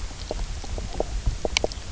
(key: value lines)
label: biophony, knock croak
recorder: SoundTrap 300